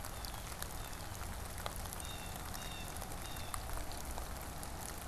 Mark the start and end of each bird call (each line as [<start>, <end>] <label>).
[0.00, 5.08] Blue Jay (Cyanocitta cristata)